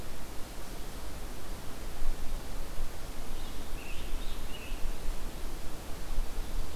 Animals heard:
Scarlet Tanager (Piranga olivacea)

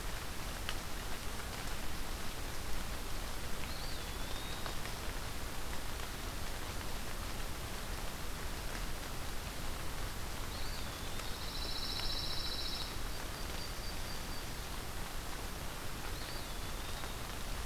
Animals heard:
Eastern Wood-Pewee (Contopus virens)
Pine Warbler (Setophaga pinus)
Yellow-rumped Warbler (Setophaga coronata)

